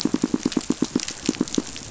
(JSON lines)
{"label": "biophony, pulse", "recorder": "SoundTrap 500"}